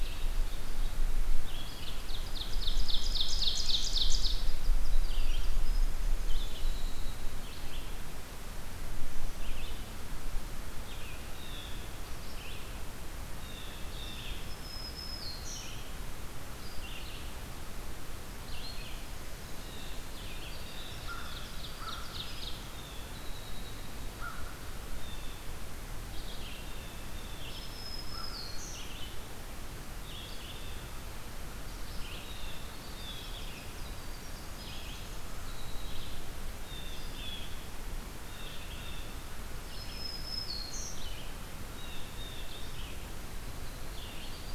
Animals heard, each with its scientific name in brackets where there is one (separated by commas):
Ovenbird (Seiurus aurocapilla), American Crow (Corvus brachyrhynchos), Red-eyed Vireo (Vireo olivaceus), Black-throated Green Warbler (Setophaga virens), Blue Jay (Cyanocitta cristata), Winter Wren (Troglodytes hiemalis), Pine Warbler (Setophaga pinus)